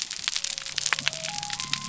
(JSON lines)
{"label": "biophony", "recorder": "SoundTrap 300"}